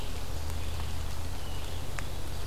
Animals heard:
forest ambience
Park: Marsh-Billings-Rockefeller National Historical Park